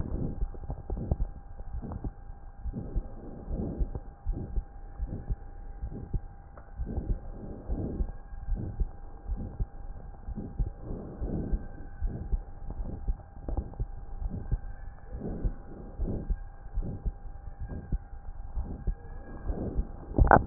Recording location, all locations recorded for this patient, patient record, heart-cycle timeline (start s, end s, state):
pulmonary valve (PV)
aortic valve (AV)+pulmonary valve (PV)+tricuspid valve (TV)
#Age: Child
#Sex: Female
#Height: 145.0 cm
#Weight: 39.7 kg
#Pregnancy status: False
#Murmur: Present
#Murmur locations: aortic valve (AV)+pulmonary valve (PV)
#Most audible location: pulmonary valve (PV)
#Systolic murmur timing: Early-systolic
#Systolic murmur shape: Decrescendo
#Systolic murmur grading: I/VI
#Systolic murmur pitch: Medium
#Systolic murmur quality: Harsh
#Diastolic murmur timing: nan
#Diastolic murmur shape: nan
#Diastolic murmur grading: nan
#Diastolic murmur pitch: nan
#Diastolic murmur quality: nan
#Outcome: Abnormal
#Campaign: 2015 screening campaign
0.00	1.30	unannotated
1.30	1.72	diastole
1.72	1.84	S1
1.84	2.00	systole
2.00	2.12	S2
2.12	2.64	diastole
2.64	2.76	S1
2.76	2.92	systole
2.92	3.06	S2
3.06	3.52	diastole
3.52	3.70	S1
3.70	3.78	systole
3.78	3.90	S2
3.90	4.28	diastole
4.28	4.40	S1
4.40	4.52	systole
4.52	4.66	S2
4.66	5.02	diastole
5.02	5.14	S1
5.14	5.26	systole
5.26	5.36	S2
5.36	5.82	diastole
5.82	5.96	S1
5.96	6.10	systole
6.10	6.24	S2
6.24	6.80	diastole
6.80	6.94	S1
6.94	7.06	systole
7.06	7.20	S2
7.20	7.67	diastole
7.67	7.86	S1
7.86	7.98	systole
7.98	8.10	S2
8.10	8.46	diastole
8.46	8.63	S1
8.63	8.76	systole
8.76	8.90	S2
8.90	9.28	diastole
9.28	9.44	S1
9.44	9.56	systole
9.56	9.68	S2
9.68	10.24	diastole
10.24	10.38	S1
10.38	10.56	systole
10.56	10.72	S2
10.72	11.22	diastole
11.22	11.38	S1
11.38	11.50	systole
11.50	11.64	S2
11.64	12.02	diastole
12.02	12.20	S1
12.20	12.30	systole
12.30	12.44	S2
12.44	12.80	diastole
12.80	12.94	S1
12.94	13.06	systole
13.06	13.16	S2
13.16	13.52	diastole
13.52	13.66	S1
13.66	13.78	systole
13.78	13.88	S2
13.88	14.17	diastole
14.17	14.40	S1
14.40	14.50	systole
14.50	14.64	S2
14.64	15.14	diastole
15.14	15.32	S1
15.32	15.42	systole
15.42	15.56	S2
15.56	16.00	diastole
16.00	16.18	S1
16.18	16.28	systole
16.28	16.38	S2
16.38	16.76	diastole
16.76	16.94	S1
16.94	17.04	systole
17.04	17.18	S2
17.18	17.62	diastole
17.62	17.76	S1
17.76	17.90	systole
17.90	18.02	S2
18.02	18.54	diastole
18.54	18.70	S1
18.70	18.84	systole
18.84	18.96	S2
18.96	19.44	diastole
19.44	19.55	S1
19.55	19.74	systole
19.74	19.89	S2
19.89	20.14	diastole
20.14	20.46	unannotated